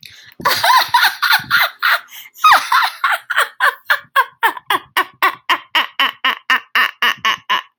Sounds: Laughter